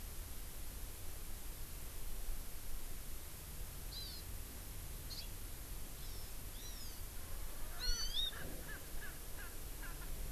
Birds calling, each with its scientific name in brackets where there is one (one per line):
Erckel's Francolin (Pternistis erckelii)
Hawaii Amakihi (Chlorodrepanis virens)